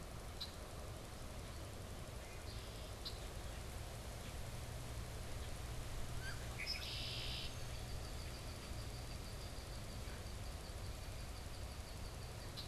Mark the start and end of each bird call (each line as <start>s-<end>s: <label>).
0.2s-12.6s: Red-winged Blackbird (Agelaius phoeniceus)
6.1s-6.4s: Wood Duck (Aix sponsa)